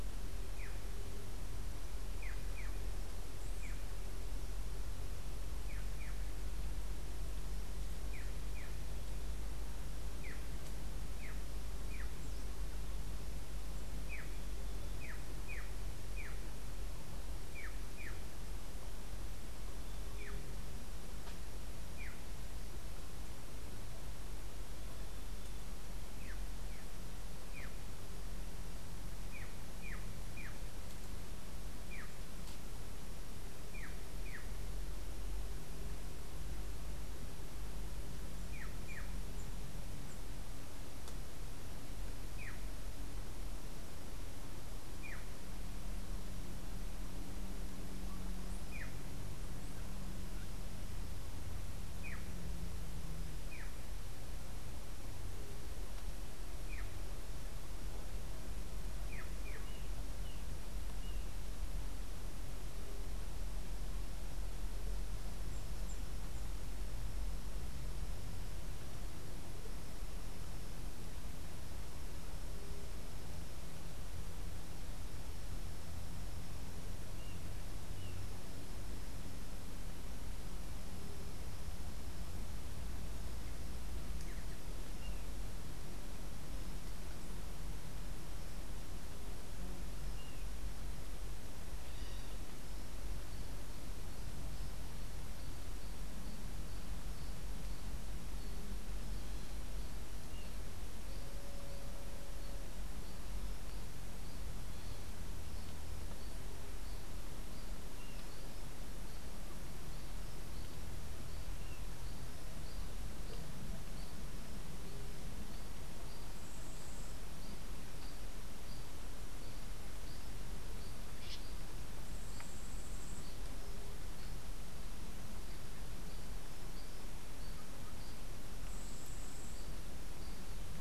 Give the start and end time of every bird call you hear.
[0.00, 22.45] Black-chested Jay (Cyanocorax affinis)
[26.15, 34.65] Black-chested Jay (Cyanocorax affinis)
[38.35, 45.35] Black-chested Jay (Cyanocorax affinis)
[48.65, 59.85] Black-chested Jay (Cyanocorax affinis)

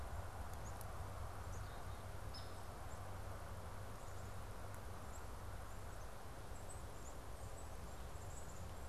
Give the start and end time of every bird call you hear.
[0.00, 1.14] Tufted Titmouse (Baeolophus bicolor)
[1.34, 8.88] Black-capped Chickadee (Poecile atricapillus)
[2.24, 2.54] unidentified bird

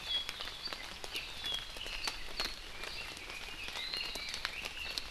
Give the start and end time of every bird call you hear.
[2.60, 5.00] Red-billed Leiothrix (Leiothrix lutea)

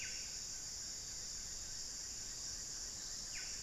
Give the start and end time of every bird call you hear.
[0.00, 3.63] Black-fronted Nunbird (Monasa nigrifrons)
[0.00, 3.63] Buff-breasted Wren (Cantorchilus leucotis)

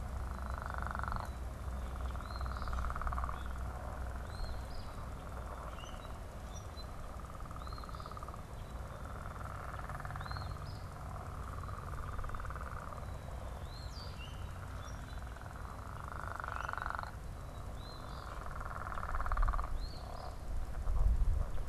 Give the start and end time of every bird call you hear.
[2.10, 2.90] Eastern Phoebe (Sayornis phoebe)
[4.00, 5.00] Eastern Phoebe (Sayornis phoebe)
[5.50, 7.00] Common Grackle (Quiscalus quiscula)
[7.30, 8.30] Eastern Phoebe (Sayornis phoebe)
[10.00, 11.00] Eastern Phoebe (Sayornis phoebe)
[13.60, 14.20] Eastern Phoebe (Sayornis phoebe)
[13.90, 15.40] Common Grackle (Quiscalus quiscula)
[16.30, 17.20] Common Grackle (Quiscalus quiscula)
[17.60, 18.40] Eastern Phoebe (Sayornis phoebe)
[19.60, 20.40] Eastern Phoebe (Sayornis phoebe)

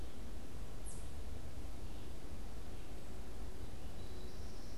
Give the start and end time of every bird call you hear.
[0.00, 4.77] American Goldfinch (Spinus tristis)

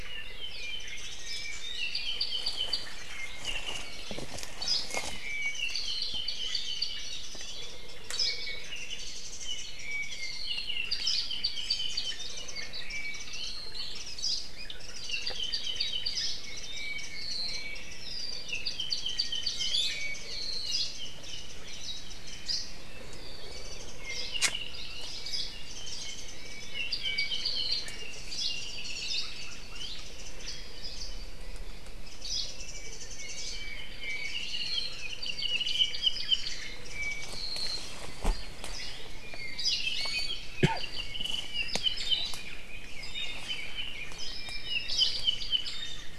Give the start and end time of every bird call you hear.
[0.00, 4.30] Apapane (Himatione sanguinea)
[0.60, 1.70] Warbling White-eye (Zosterops japonicus)
[4.50, 5.00] Hawaii Creeper (Loxops mana)
[4.90, 7.10] Apapane (Himatione sanguinea)
[5.20, 7.70] Warbling White-eye (Zosterops japonicus)
[8.00, 8.40] Hawaii Creeper (Loxops mana)
[8.10, 12.20] Apapane (Himatione sanguinea)
[8.60, 10.50] Warbling White-eye (Zosterops japonicus)
[10.90, 11.30] Hawaii Creeper (Loxops mana)
[11.80, 13.60] Warbling White-eye (Zosterops japonicus)
[12.50, 14.00] Apapane (Himatione sanguinea)
[14.10, 14.50] Hawaii Creeper (Loxops mana)
[14.50, 20.80] Apapane (Himatione sanguinea)
[14.70, 22.40] Warbling White-eye (Zosterops japonicus)
[19.60, 20.00] Iiwi (Drepanis coccinea)
[20.60, 20.90] Hawaii Creeper (Loxops mana)
[22.40, 22.70] Hawaii Creeper (Loxops mana)
[23.50, 24.20] Warbling White-eye (Zosterops japonicus)
[25.20, 25.60] Hawaii Creeper (Loxops mana)
[25.60, 27.90] Warbling White-eye (Zosterops japonicus)
[26.30, 27.90] Apapane (Himatione sanguinea)
[28.20, 28.70] Hawaii Creeper (Loxops mana)
[29.00, 29.30] Hawaii Creeper (Loxops mana)
[29.30, 30.70] Warbling White-eye (Zosterops japonicus)
[32.00, 33.60] Warbling White-eye (Zosterops japonicus)
[32.20, 32.60] Hawaii Creeper (Loxops mana)
[32.50, 34.40] Apapane (Himatione sanguinea)
[34.00, 36.30] Warbling White-eye (Zosterops japonicus)
[34.70, 37.90] Apapane (Himatione sanguinea)
[36.80, 37.40] Warbling White-eye (Zosterops japonicus)
[39.20, 40.50] Iiwi (Drepanis coccinea)
[39.20, 42.40] Apapane (Himatione sanguinea)
[39.50, 39.90] Hawaii Creeper (Loxops mana)
[42.30, 44.30] Red-billed Leiothrix (Leiothrix lutea)
[44.20, 45.90] Apapane (Himatione sanguinea)
[45.60, 46.10] Warbling White-eye (Zosterops japonicus)

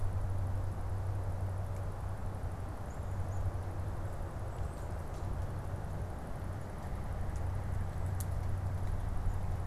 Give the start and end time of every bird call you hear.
[2.51, 5.01] Golden-crowned Kinglet (Regulus satrapa)

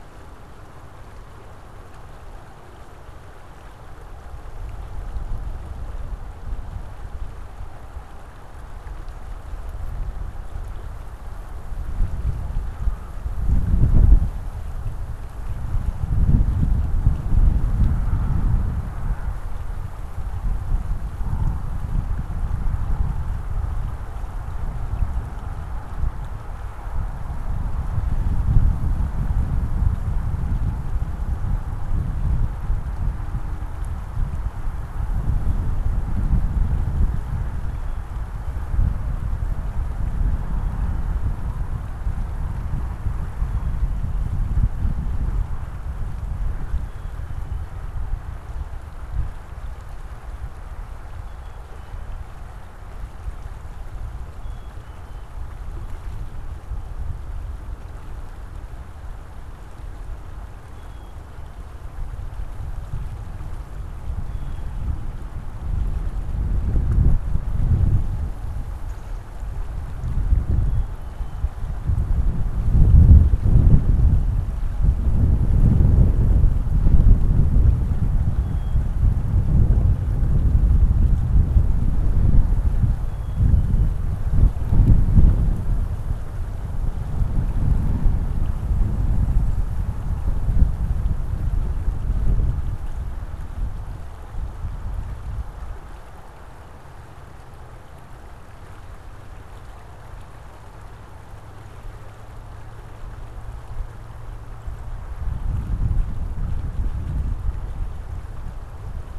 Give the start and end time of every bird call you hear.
[37.53, 38.73] Black-capped Chickadee (Poecile atricapillus)
[40.13, 41.34] Black-capped Chickadee (Poecile atricapillus)
[43.34, 44.44] Black-capped Chickadee (Poecile atricapillus)
[46.63, 47.94] Black-capped Chickadee (Poecile atricapillus)
[51.13, 52.23] Black-capped Chickadee (Poecile atricapillus)
[54.34, 55.44] Black-capped Chickadee (Poecile atricapillus)
[60.63, 62.03] Black-capped Chickadee (Poecile atricapillus)
[64.23, 65.44] Black-capped Chickadee (Poecile atricapillus)
[68.64, 69.44] Black-capped Chickadee (Poecile atricapillus)
[70.44, 71.64] Black-capped Chickadee (Poecile atricapillus)
[78.33, 79.44] Black-capped Chickadee (Poecile atricapillus)
[82.94, 84.14] Black-capped Chickadee (Poecile atricapillus)

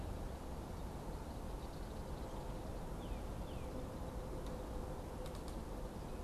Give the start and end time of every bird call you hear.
[2.70, 3.80] Northern Cardinal (Cardinalis cardinalis)

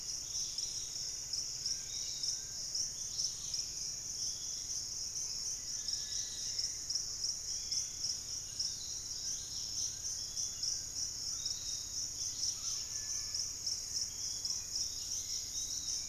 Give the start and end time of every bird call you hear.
[0.00, 16.09] Dusky-capped Greenlet (Pachysylvia hypoxantha)
[0.00, 16.09] Piratic Flycatcher (Legatus leucophaius)
[0.26, 2.66] Pygmy Antwren (Myrmotherula brachyura)
[0.56, 2.86] Fasciated Antshrike (Cymbilaimus lineatus)
[2.36, 3.26] unidentified bird
[3.26, 8.26] Hauxwell's Thrush (Turdus hauxwelli)
[8.36, 11.16] Fasciated Antshrike (Cymbilaimus lineatus)
[14.56, 16.09] Hauxwell's Thrush (Turdus hauxwelli)

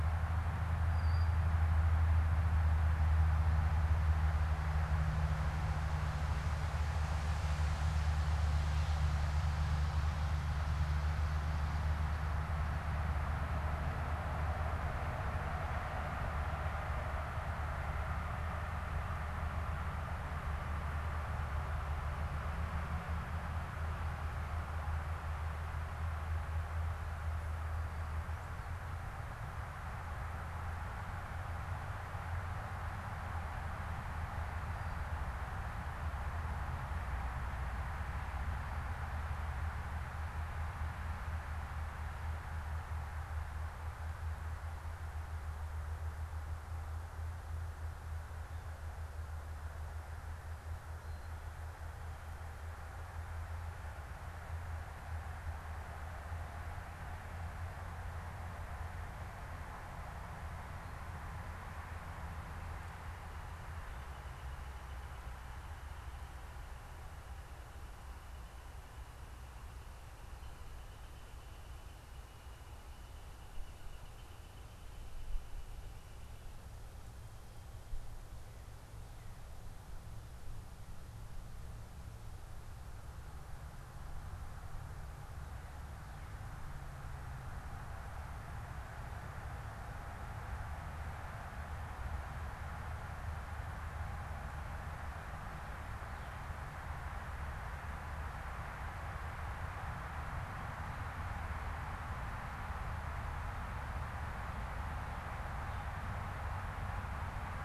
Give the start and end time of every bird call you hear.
[0.77, 1.57] unidentified bird
[62.27, 76.27] Northern Flicker (Colaptes auratus)

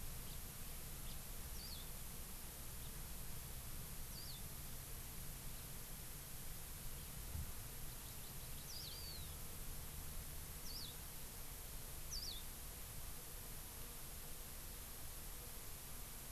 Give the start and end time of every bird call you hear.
[0.21, 0.41] House Finch (Haemorhous mexicanus)
[1.01, 1.22] House Finch (Haemorhous mexicanus)
[7.82, 9.41] Hawaii Amakihi (Chlorodrepanis virens)

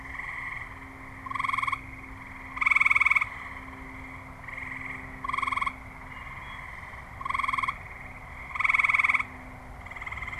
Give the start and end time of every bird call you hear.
[5.93, 6.73] Wood Thrush (Hylocichla mustelina)

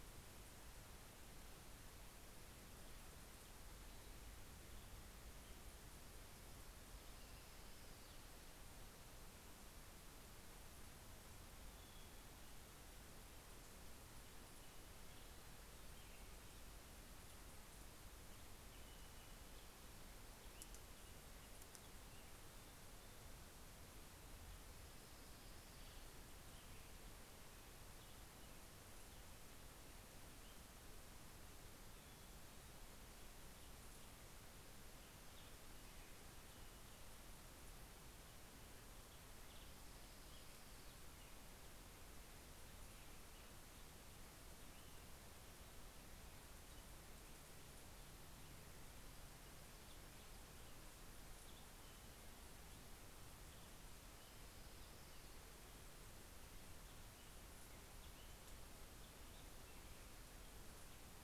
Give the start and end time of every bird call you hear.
[39.18, 41.58] Orange-crowned Warbler (Leiothlypis celata)
[48.68, 60.88] Black-headed Grosbeak (Pheucticus melanocephalus)

